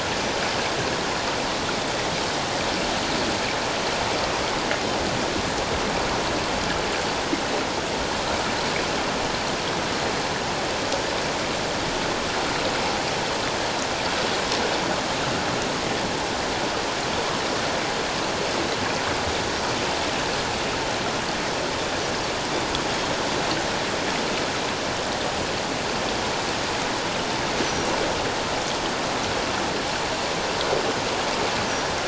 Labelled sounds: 27.6	27.9	Pacific white-sided dolphin, 5.5 to 6.2 kHz

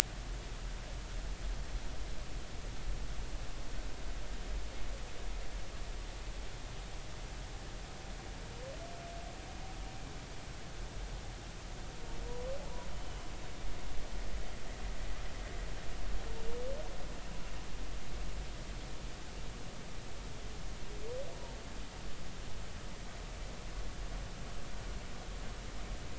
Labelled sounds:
12.2	13.3	humpback whale, 0.83 to 3.0 kHz

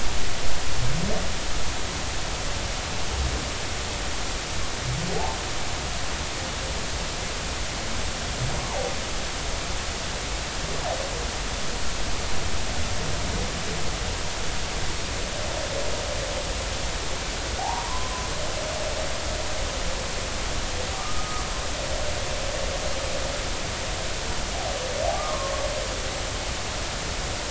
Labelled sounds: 8.6	8.8	humpback whale, 0.80 to 1.2 kHz
17.6	18.3	humpback whale, 0.80 to 1.2 kHz
21.9	22.4	humpback whale, 1.1 to 1.3 kHz
25.1	25.5	humpback whale, 1.0 to 1.3 kHz

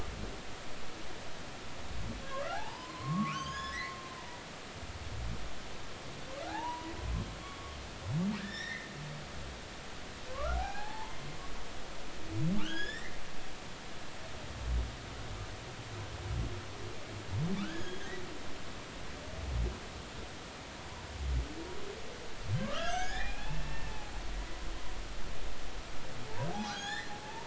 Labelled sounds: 2.2	4.4	humpback whale, 0.80 to 7.0 kHz
6.4	7.8	humpback whale, 0.80 to 1.9 kHz
8.4	8.9	humpback whale, 1.5 to 5.8 kHz
10.3	11.1	humpback whale, 0.80 to 2.6 kHz
12.5	13.2	humpback whale, 1.1 to 7.0 kHz
17.6	18.0	humpback whale, 1.1 to 3.4 kHz
22.6	24.1	humpback whale, 0.80 to 3.6 kHz
26.5	27.4	humpback whale, 0.80 to 5.1 kHz

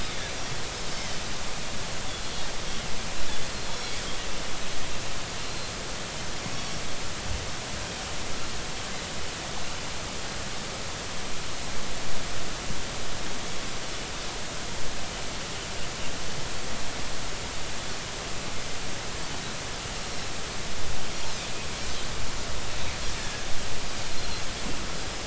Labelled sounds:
5.4	5.7	Pacific white-sided dolphin, 4.1 to 4.3 kHz
6.5	6.8	Pacific white-sided dolphin, 5.5 to 5.7 kHz
23.2	23.5	Pacific white-sided dolphin, 1.6 to 1.8 kHz

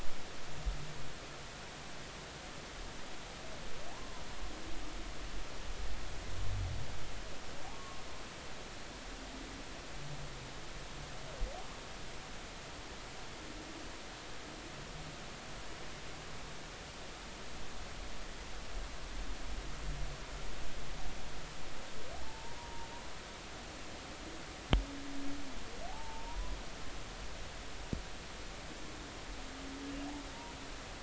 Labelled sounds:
3.9	4.2	humpback whale, 0.80 to 1.1 kHz
7.7	8.0	humpback whale, 1.1 to 1.2 kHz
22.2	22.9	humpback whale, 0.80 to 1.0 kHz
25.9	26.6	humpback whale, 0.80 to 1.1 kHz

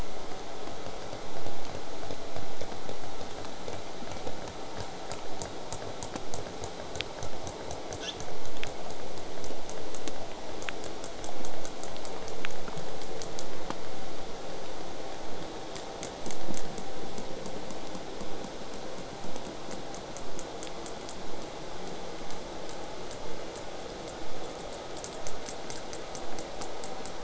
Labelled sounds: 8.0	8.2	killer whale, southern resident, J pod, 1.3 to 8.0 kHz
10.6	13.4	killer whale, southern resident, J pod, 2.9 to 8.0 kHz
18.2	23.2	vessel noise, 0.04 to 8.0 kHz

